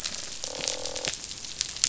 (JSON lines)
{"label": "biophony, croak", "recorder": "SoundTrap 500"}